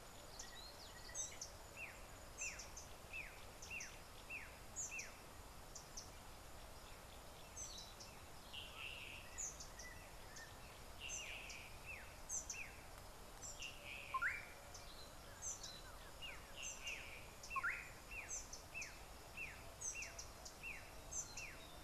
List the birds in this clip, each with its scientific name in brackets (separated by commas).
Black-backed Puffback (Dryoscopus cubla), Slate-colored Boubou (Laniarius funebris), Collared Sunbird (Hedydipna collaris)